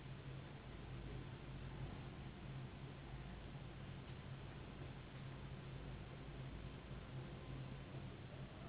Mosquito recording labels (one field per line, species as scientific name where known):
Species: Anopheles gambiae s.s.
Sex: female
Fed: unfed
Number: one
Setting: insect culture